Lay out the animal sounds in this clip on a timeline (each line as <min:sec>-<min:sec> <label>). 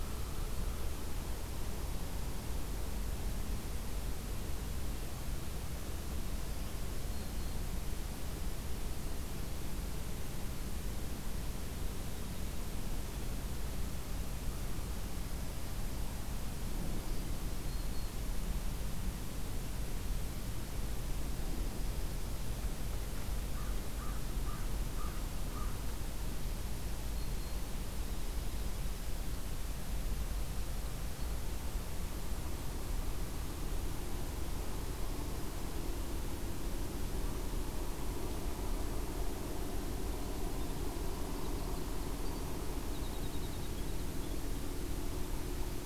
0:06.4-0:07.6 Black-throated Green Warbler (Setophaga virens)
0:17.0-0:18.2 Black-throated Green Warbler (Setophaga virens)
0:21.4-0:22.6 Dark-eyed Junco (Junco hyemalis)
0:23.5-0:25.7 American Crow (Corvus brachyrhynchos)
0:26.9-0:27.6 Black-throated Green Warbler (Setophaga virens)
0:28.1-0:29.4 Dark-eyed Junco (Junco hyemalis)
0:40.1-0:45.9 Winter Wren (Troglodytes hiemalis)